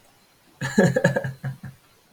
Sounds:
Laughter